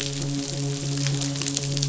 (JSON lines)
{"label": "biophony, midshipman", "recorder": "SoundTrap 500"}